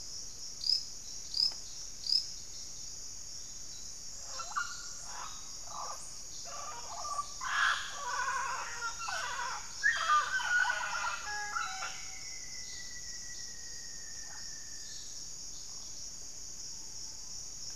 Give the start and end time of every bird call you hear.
[0.00, 17.75] Mealy Parrot (Amazona farinosa)
[10.16, 15.16] Rufous-fronted Antthrush (Formicarius rufifrons)

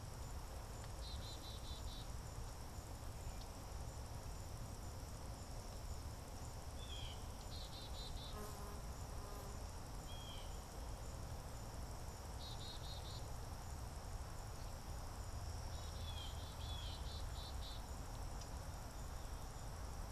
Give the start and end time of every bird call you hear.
[0.00, 18.43] Black-capped Chickadee (Poecile atricapillus)
[6.62, 7.42] Blue Jay (Cyanocitta cristata)
[9.82, 10.62] Blue Jay (Cyanocitta cristata)
[15.72, 17.12] Blue Jay (Cyanocitta cristata)

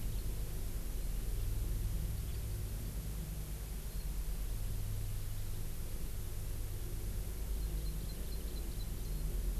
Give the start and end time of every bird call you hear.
[7.50, 8.90] Hawaii Amakihi (Chlorodrepanis virens)

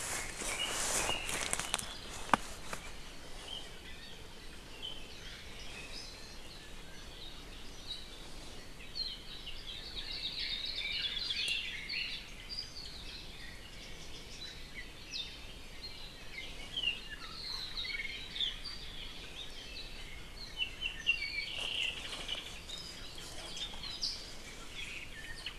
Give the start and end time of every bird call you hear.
[4.68, 5.08] Apapane (Himatione sanguinea)
[7.08, 7.38] Apapane (Himatione sanguinea)
[7.78, 8.08] Apapane (Himatione sanguinea)
[8.88, 9.18] Apapane (Himatione sanguinea)
[9.48, 11.78] Hawaii Akepa (Loxops coccineus)
[9.88, 12.28] Red-billed Leiothrix (Leiothrix lutea)
[11.98, 12.28] Hawaii Elepaio (Chasiempis sandwichensis)
[15.08, 15.38] Apapane (Himatione sanguinea)
[16.68, 18.28] Apapane (Himatione sanguinea)
[20.48, 22.58] Apapane (Himatione sanguinea)

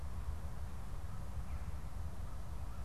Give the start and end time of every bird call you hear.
[1.37, 1.77] Veery (Catharus fuscescens)

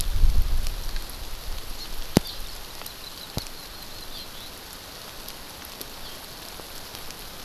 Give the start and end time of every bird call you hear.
[1.77, 1.87] Hawaii Amakihi (Chlorodrepanis virens)
[2.17, 2.37] Eurasian Skylark (Alauda arvensis)
[2.77, 4.07] Hawaii Amakihi (Chlorodrepanis virens)
[4.07, 4.57] Eurasian Skylark (Alauda arvensis)
[5.97, 6.17] Eurasian Skylark (Alauda arvensis)

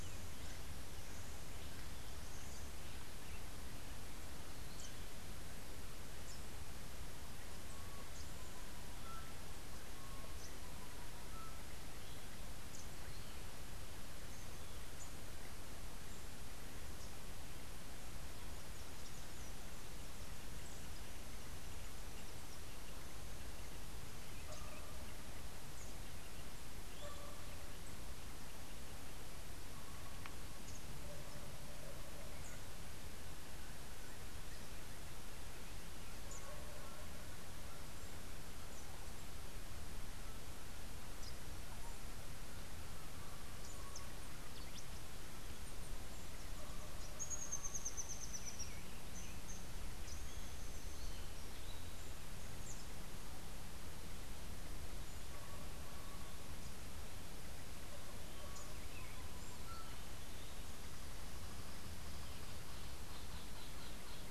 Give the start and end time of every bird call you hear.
[7.52, 11.92] Rufous-and-white Wren (Thryophilus rufalbus)
[47.12, 48.72] Rufous-tailed Hummingbird (Amazilia tzacatl)

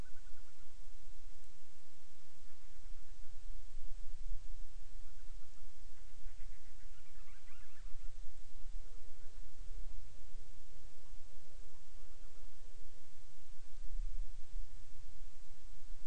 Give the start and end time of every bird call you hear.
[0.00, 0.80] Band-rumped Storm-Petrel (Hydrobates castro)
[2.40, 3.50] Band-rumped Storm-Petrel (Hydrobates castro)
[5.00, 8.20] Band-rumped Storm-Petrel (Hydrobates castro)

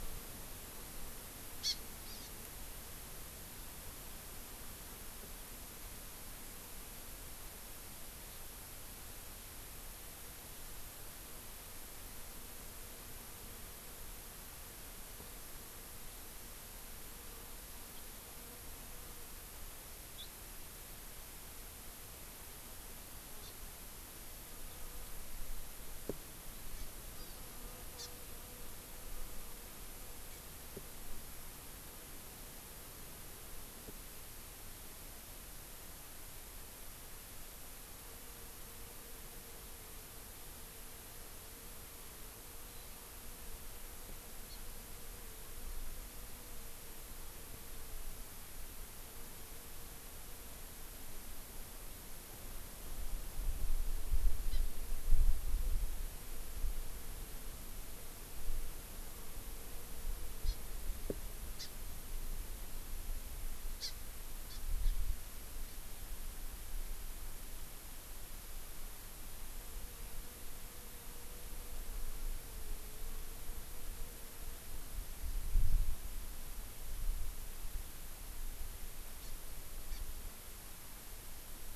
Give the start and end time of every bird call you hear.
[1.60, 2.30] Hawaii Amakihi (Chlorodrepanis virens)
[20.20, 20.30] House Finch (Haemorhous mexicanus)
[23.40, 23.50] Hawaii Amakihi (Chlorodrepanis virens)
[26.80, 26.90] Hawaii Amakihi (Chlorodrepanis virens)
[27.20, 27.50] Hawaii Amakihi (Chlorodrepanis virens)
[28.00, 28.10] Hawaii Amakihi (Chlorodrepanis virens)
[44.50, 44.60] Hawaii Amakihi (Chlorodrepanis virens)
[54.50, 54.60] Hawaii Amakihi (Chlorodrepanis virens)
[60.40, 60.60] Hawaii Amakihi (Chlorodrepanis virens)
[61.60, 61.70] Hawaii Amakihi (Chlorodrepanis virens)
[63.80, 63.90] Hawaii Amakihi (Chlorodrepanis virens)
[64.50, 64.90] Hawaii Amakihi (Chlorodrepanis virens)
[79.20, 79.30] Hawaii Amakihi (Chlorodrepanis virens)
[79.90, 80.00] Hawaii Amakihi (Chlorodrepanis virens)

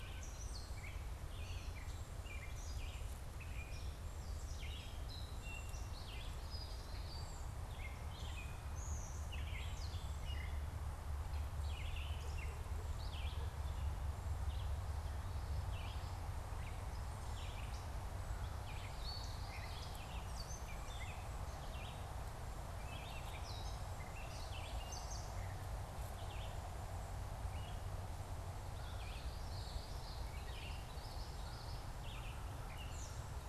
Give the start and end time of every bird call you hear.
[0.00, 26.64] Red-eyed Vireo (Vireo olivaceus)
[0.00, 28.74] Gray Catbird (Dumetella carolinensis)
[18.54, 19.94] Common Yellowthroat (Geothlypis trichas)
[27.34, 32.44] Red-eyed Vireo (Vireo olivaceus)
[28.64, 31.94] Common Yellowthroat (Geothlypis trichas)
[32.14, 33.44] Gray Catbird (Dumetella carolinensis)

